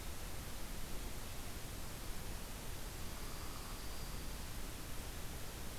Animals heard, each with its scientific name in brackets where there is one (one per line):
Dark-eyed Junco (Junco hyemalis)
Northern Flicker (Colaptes auratus)